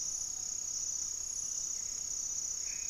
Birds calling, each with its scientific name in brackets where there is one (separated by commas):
Great Antshrike (Taraba major)